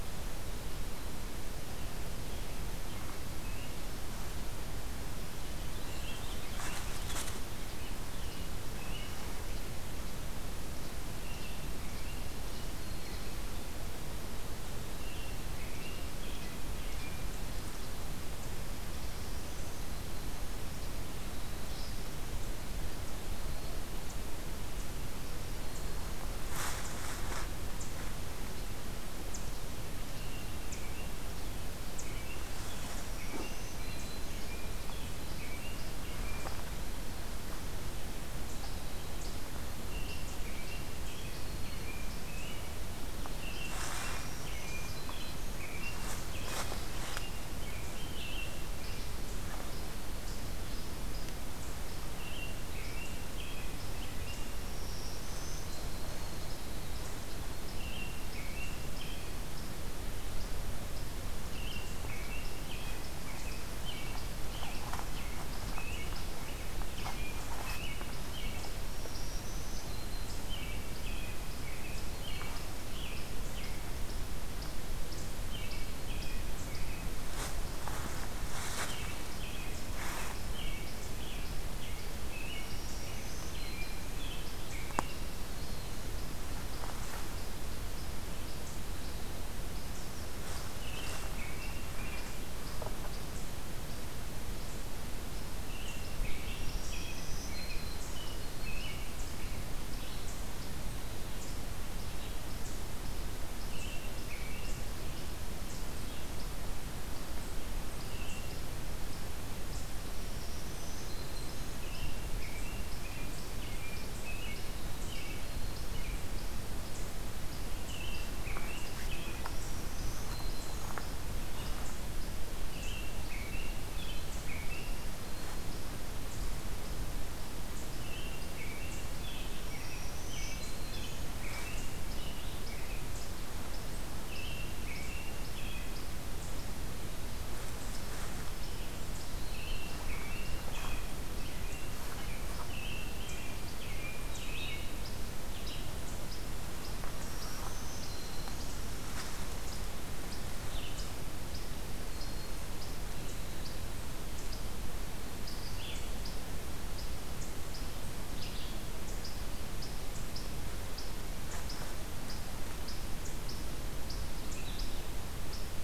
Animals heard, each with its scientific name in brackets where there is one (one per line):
Red-eyed Vireo (Vireo olivaceus)
Least Flycatcher (Empidonax minimus)
American Robin (Turdus migratorius)
Purple Finch (Haemorhous purpureus)
Black-throated Green Warbler (Setophaga virens)